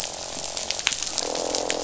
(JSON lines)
{"label": "biophony, croak", "recorder": "SoundTrap 500"}